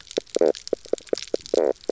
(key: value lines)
label: biophony, knock croak
recorder: SoundTrap 300